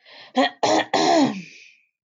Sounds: Throat clearing